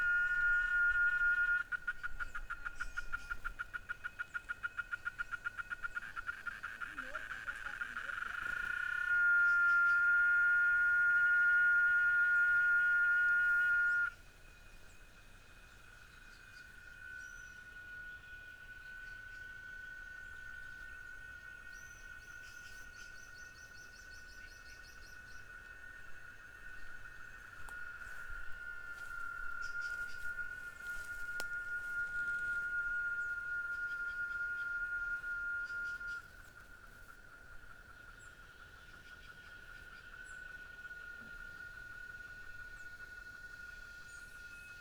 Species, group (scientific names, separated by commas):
Quesada gigas, Cicadidae